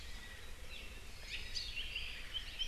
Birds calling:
Hawaii Creeper (Loxops mana), Apapane (Himatione sanguinea)

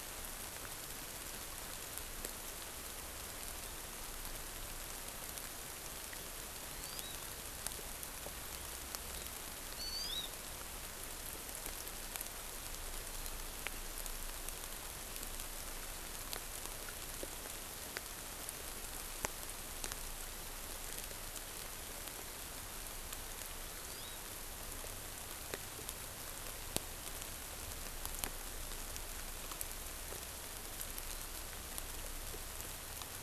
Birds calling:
Hawaii Amakihi (Chlorodrepanis virens)

